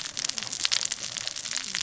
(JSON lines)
{"label": "biophony, cascading saw", "recorder": "SoundTrap 600 or HydroMoth"}